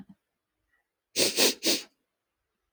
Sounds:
Sniff